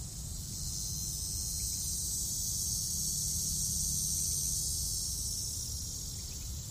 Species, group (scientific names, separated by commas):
Neotibicen davisi, Cicadidae